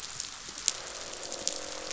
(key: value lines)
label: biophony, croak
recorder: SoundTrap 500